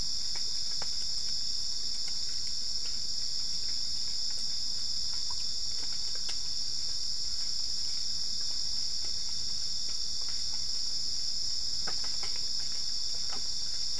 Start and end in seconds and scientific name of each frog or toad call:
none